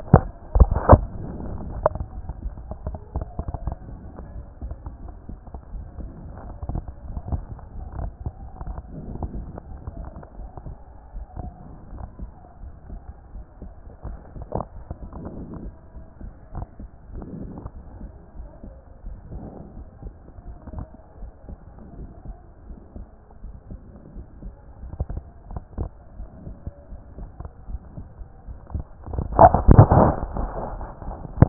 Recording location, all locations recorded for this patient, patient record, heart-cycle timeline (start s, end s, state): pulmonary valve (PV)
aortic valve (AV)+pulmonary valve (PV)+tricuspid valve (TV)+mitral valve (MV)
#Age: Child
#Sex: Female
#Height: 152.0 cm
#Weight: 41.0 kg
#Pregnancy status: False
#Murmur: Absent
#Murmur locations: nan
#Most audible location: nan
#Systolic murmur timing: nan
#Systolic murmur shape: nan
#Systolic murmur grading: nan
#Systolic murmur pitch: nan
#Systolic murmur quality: nan
#Diastolic murmur timing: nan
#Diastolic murmur shape: nan
#Diastolic murmur grading: nan
#Diastolic murmur pitch: nan
#Diastolic murmur quality: nan
#Outcome: Abnormal
#Campaign: 2014 screening campaign
0.00	4.23	unannotated
4.23	4.32	diastole
4.32	4.44	S1
4.44	4.62	systole
4.62	4.78	S2
4.78	5.04	diastole
5.04	5.14	S1
5.14	5.28	systole
5.28	5.38	S2
5.38	5.72	diastole
5.72	5.88	S1
5.88	5.98	systole
5.98	6.10	S2
6.10	6.44	diastole
6.44	6.56	S1
6.56	6.68	systole
6.68	6.82	S2
6.82	7.08	diastole
7.08	7.24	S1
7.24	7.30	systole
7.30	7.46	S2
7.46	7.76	diastole
7.76	7.86	S1
7.86	7.96	systole
7.96	8.12	S2
8.12	8.40	diastole
8.40	8.50	S1
8.50	8.60	systole
8.60	8.76	S2
8.76	9.10	diastole
9.10	9.22	S1
9.22	9.32	systole
9.32	9.46	S2
9.46	9.74	diastole
9.74	9.82	S1
9.82	9.96	systole
9.96	10.08	S2
10.08	10.38	diastole
10.38	10.50	S1
10.50	10.64	systole
10.64	10.76	S2
10.76	11.14	diastole
11.14	11.26	S1
11.26	11.40	systole
11.40	11.54	S2
11.54	11.92	diastole
11.92	12.08	S1
12.08	12.22	systole
12.22	12.32	S2
12.32	12.62	diastole
12.62	12.72	S1
12.72	12.88	systole
12.88	13.00	S2
13.00	13.34	diastole
13.34	13.44	S1
13.44	13.62	systole
13.62	13.72	S2
13.72	14.06	diastole
14.06	14.18	S1
14.18	14.36	systole
14.36	14.48	S2
14.48	14.78	diastole
14.78	14.86	S1
14.86	15.02	systole
15.02	15.10	S2
15.10	15.38	diastole
15.38	15.50	S1
15.50	15.64	systole
15.64	15.76	S2
15.76	15.92	diastole
15.92	16.10	S1
16.10	16.21	systole
16.21	16.33	S2
16.33	16.54	diastole
16.54	16.63	S1
16.63	16.79	systole
16.79	16.89	S2
16.89	17.10	diastole
17.10	17.22	S1
17.22	17.34	systole
17.34	17.48	S2
17.48	17.76	diastole
17.76	17.84	S1
17.84	18.00	systole
18.00	18.10	S2
18.10	18.40	diastole
18.40	18.50	S1
18.50	18.68	systole
18.68	18.76	S2
18.76	19.06	diastole
19.06	19.18	S1
19.18	19.32	systole
19.32	19.44	S2
19.44	19.78	diastole
19.78	19.88	S1
19.88	20.04	systole
20.04	20.14	S2
20.14	20.48	diastole
20.48	20.56	S1
20.56	20.74	systole
20.74	20.88	S2
20.88	21.22	diastole
21.22	21.32	S1
21.32	21.50	systole
21.50	21.58	S2
21.58	21.98	diastole
21.98	22.10	S1
22.10	22.26	systole
22.26	22.36	S2
22.36	22.70	diastole
22.70	22.78	S1
22.78	22.96	systole
22.96	23.06	S2
23.06	23.44	diastole
23.44	23.56	S1
23.56	23.70	systole
23.70	23.80	S2
23.80	24.14	diastole
24.14	24.26	S1
24.26	24.42	systole
24.42	24.54	S2
24.54	24.84	diastole
24.84	24.94	S1
24.94	25.08	systole
25.08	25.24	S2
25.24	25.52	diastole
25.52	25.64	S1
25.64	25.78	systole
25.78	25.92	S2
25.92	26.20	diastole
26.20	26.30	S1
26.30	26.46	systole
26.46	26.56	S2
26.56	26.92	diastole
26.92	27.02	S1
27.02	27.18	systole
27.18	27.30	S2
27.30	27.70	diastole
27.70	27.82	S1
27.82	27.98	systole
27.98	28.08	S2
28.08	28.12	diastole
28.12	31.49	unannotated